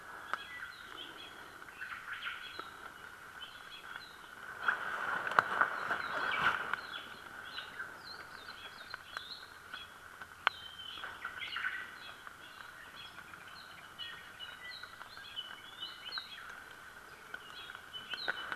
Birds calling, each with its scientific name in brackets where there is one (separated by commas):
Omao (Myadestes obscurus), Apapane (Himatione sanguinea)